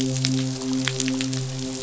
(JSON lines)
{"label": "biophony, midshipman", "recorder": "SoundTrap 500"}